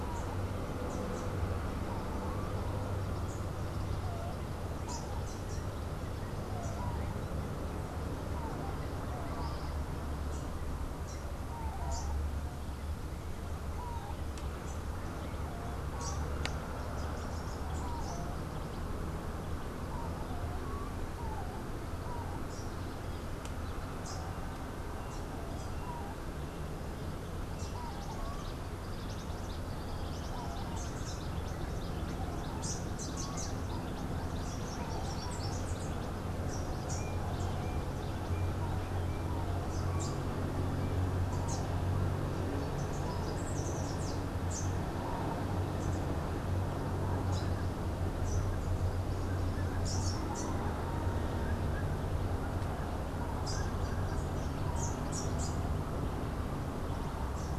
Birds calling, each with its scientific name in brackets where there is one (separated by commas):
Cabanis's Wren (Cantorchilus modestus), Rufous-capped Warbler (Basileuterus rufifrons)